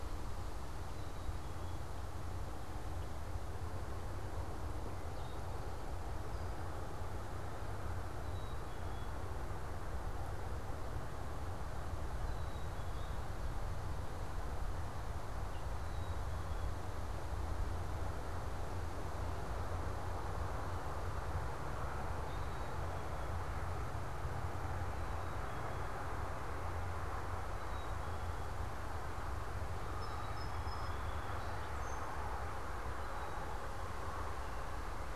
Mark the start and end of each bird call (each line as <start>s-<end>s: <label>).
0.0s-16.8s: Black-capped Chickadee (Poecile atricapillus)
22.1s-35.2s: Black-capped Chickadee (Poecile atricapillus)
29.7s-32.1s: Song Sparrow (Melospiza melodia)